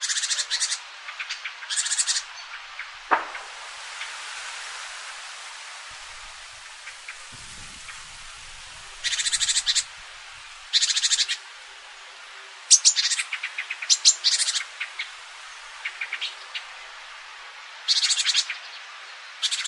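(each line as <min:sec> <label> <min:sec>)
0:00.0 Birds chirping in the background. 0:03.0
0:00.0 Quiet background noise far away. 0:19.7
0:03.0 A loud sound of an object falling. 0:03.3
0:09.0 Birds chirping in the background. 0:09.9
0:10.6 Birds chirping in the background. 0:11.5
0:12.7 Birds chirping in the background. 0:16.7
0:17.8 Birds chirping in the background. 0:19.7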